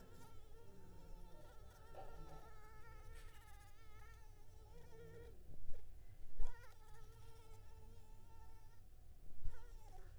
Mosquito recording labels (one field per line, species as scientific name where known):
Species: Anopheles arabiensis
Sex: female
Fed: unfed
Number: one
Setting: cup